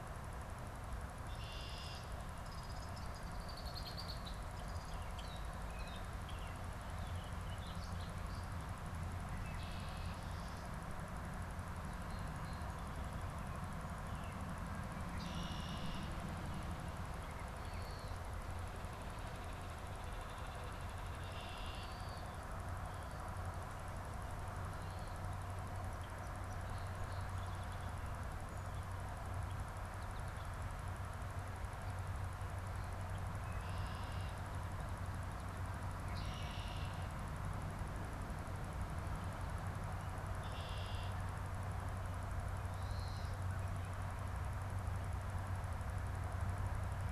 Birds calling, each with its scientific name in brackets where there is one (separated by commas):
Gray Catbird (Dumetella carolinensis), Red-winged Blackbird (Agelaius phoeniceus), American Robin (Turdus migratorius), Baltimore Oriole (Icterus galbula), Warbling Vireo (Vireo gilvus), Song Sparrow (Melospiza melodia), American Goldfinch (Spinus tristis)